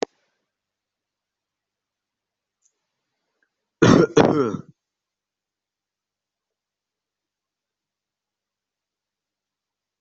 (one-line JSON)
{"expert_labels": [{"quality": "ok", "cough_type": "unknown", "dyspnea": false, "wheezing": false, "stridor": false, "choking": false, "congestion": false, "nothing": true, "diagnosis": "healthy cough", "severity": "pseudocough/healthy cough"}]}